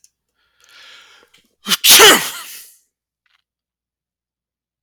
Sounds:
Sneeze